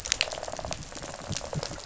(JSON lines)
{"label": "biophony, rattle response", "recorder": "SoundTrap 500"}